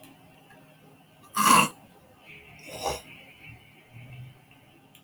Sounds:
Throat clearing